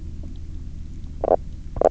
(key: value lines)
label: biophony
recorder: SoundTrap 300